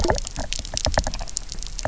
{"label": "biophony, knock", "recorder": "SoundTrap 300"}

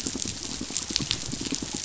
{"label": "biophony, pulse", "recorder": "SoundTrap 500"}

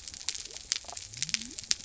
{"label": "biophony", "recorder": "SoundTrap 300"}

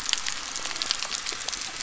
{"label": "anthrophony, boat engine", "recorder": "SoundTrap 300"}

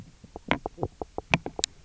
{"label": "biophony, knock croak", "recorder": "SoundTrap 300"}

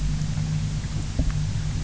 {"label": "anthrophony, boat engine", "recorder": "SoundTrap 300"}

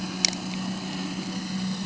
{"label": "anthrophony, boat engine", "recorder": "HydroMoth"}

